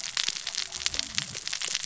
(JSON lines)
{"label": "biophony, cascading saw", "recorder": "SoundTrap 600 or HydroMoth"}